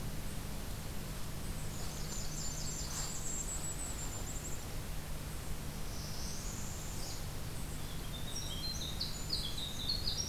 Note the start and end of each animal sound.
1.3s-3.9s: Blackburnian Warbler (Setophaga fusca)
1.6s-4.6s: Golden-crowned Kinglet (Regulus satrapa)
5.7s-7.5s: Northern Parula (Setophaga americana)
7.6s-10.3s: Winter Wren (Troglodytes hiemalis)

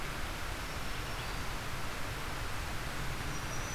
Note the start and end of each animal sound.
0.0s-3.7s: Red-eyed Vireo (Vireo olivaceus)
0.4s-1.6s: Black-throated Green Warbler (Setophaga virens)

